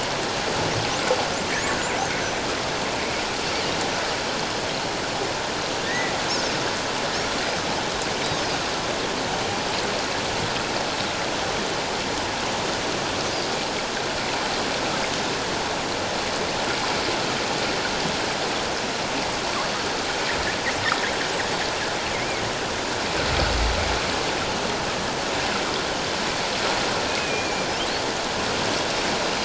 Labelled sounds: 5.9	6.1	killer whale, northern resident, 1.8 to 2.1 kHz
22.1	22.4	killer whale, northern resident, 2.1 to 2.4 kHz
27.2	27.7	killer whale, northern resident, 2.3 to 2.6 kHz

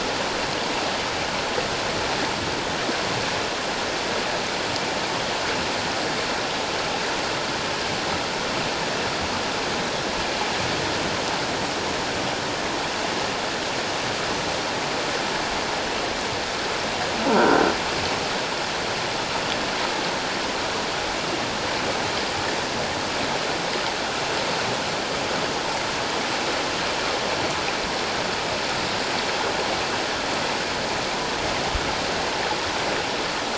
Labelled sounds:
17.3	17.6	croaking sound likely from a nearby submerged object, 1.3 to 1.6 kHz

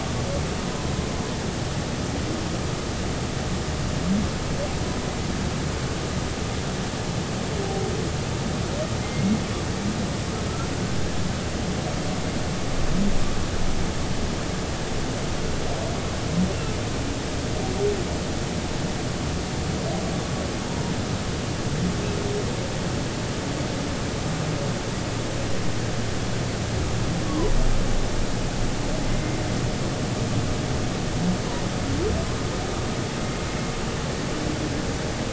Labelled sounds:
0.6	0.9	humpback whale, 0.96 to 1.1 kHz
9.0	9.4	humpback whale, 2.0 to 2.3 kHz
20.7	20.9	humpback whale, 0.90 to 1.0 kHz
27.3	27.5	humpback whale, 0.93 to 1.2 kHz

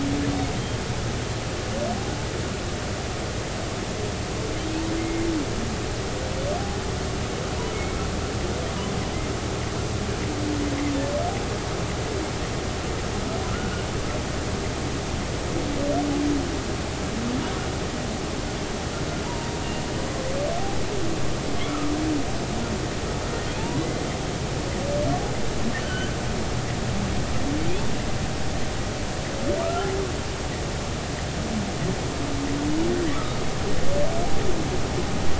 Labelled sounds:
5.0	5.3	humpback whale, 2.0 to 2.2 kHz
19.2	19.6	humpback whale, 0.83 to 1.0 kHz
21.7	21.9	humpback whale, 1.2 to 1.4 kHz
25.8	26.1	humpback whale, 1.4 to 3.1 kHz
29.6	29.9	humpback whale, 1.1 to 1.4 kHz
33.1	33.3	humpback whale, 1.1 to 1.4 kHz

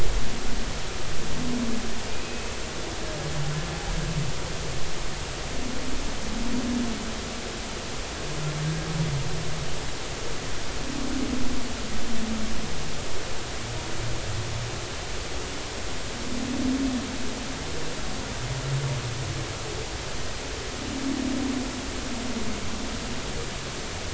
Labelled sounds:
2.2	2.5	humpback whale, 2.5 to 2.7 kHz

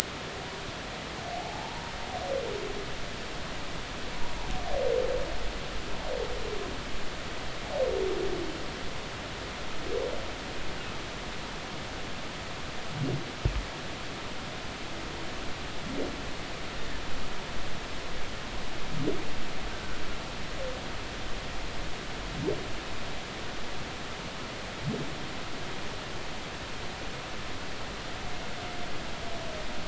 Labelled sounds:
1.3	1.9	humpback whale, 0.80 to 0.99 kHz
19.7	20.0	humpback whale, 1.4 to 1.6 kHz

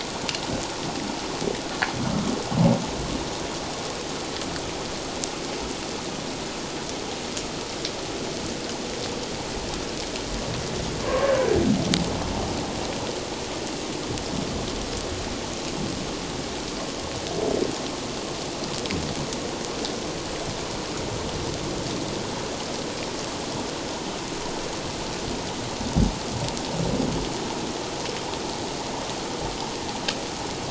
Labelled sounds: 11.0	11.3	humpback whale, 0.97 to 1.2 kHz

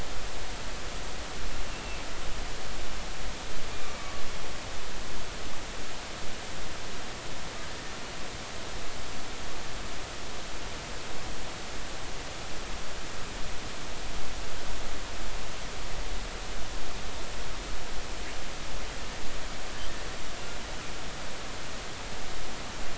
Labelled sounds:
3.7	4.2	killer whale, 1.1 to 2.4 kHz

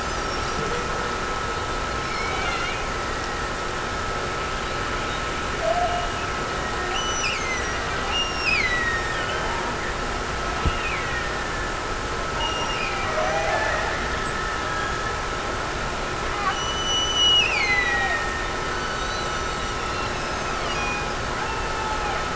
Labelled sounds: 5.8	9.7	killer whale, Bigg's (transient), Gulf of Alaska transient, 1.7 to 6.0 kHz
10.5	12.0	killer whale, Bigg's (transient), Gulf of Alaska transient, 1.6 to 2.9 kHz
12.4	14.5	killer whale, Bigg's (transient), Gulf of Alaska transient, 0.27 to 5.7 kHz
16.5	18.8	killer whale, Bigg's (transient), Gulf of Alaska transient, 1.7 to 8.0 kHz

